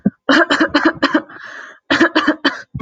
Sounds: Cough